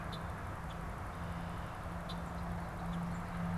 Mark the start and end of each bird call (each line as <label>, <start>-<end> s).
Red-winged Blackbird (Agelaius phoeniceus), 0.0-3.6 s
Common Grackle (Quiscalus quiscula), 0.6-0.9 s
Common Grackle (Quiscalus quiscula), 2.8-3.1 s